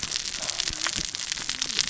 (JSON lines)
{"label": "biophony, cascading saw", "recorder": "SoundTrap 600 or HydroMoth"}